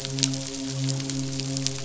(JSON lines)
{"label": "biophony, midshipman", "recorder": "SoundTrap 500"}